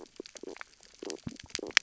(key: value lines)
label: biophony, stridulation
recorder: SoundTrap 600 or HydroMoth